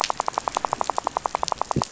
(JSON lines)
{"label": "biophony, rattle", "recorder": "SoundTrap 500"}